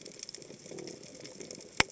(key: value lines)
label: biophony
recorder: HydroMoth